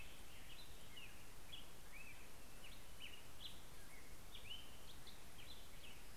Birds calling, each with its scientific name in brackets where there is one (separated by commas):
Orange-crowned Warbler (Leiothlypis celata), Black-headed Grosbeak (Pheucticus melanocephalus)